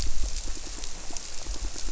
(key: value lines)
label: biophony, squirrelfish (Holocentrus)
recorder: SoundTrap 300